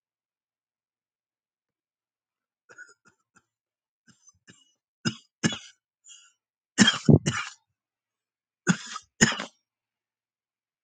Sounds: Cough